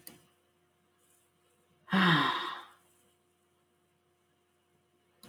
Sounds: Sigh